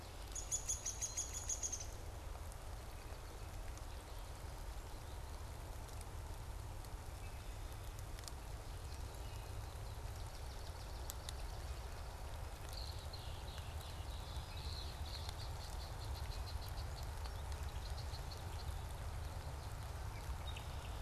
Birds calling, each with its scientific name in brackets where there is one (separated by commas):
Downy Woodpecker (Dryobates pubescens), Swamp Sparrow (Melospiza georgiana), Red-winged Blackbird (Agelaius phoeniceus)